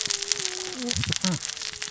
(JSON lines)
{"label": "biophony, cascading saw", "recorder": "SoundTrap 600 or HydroMoth"}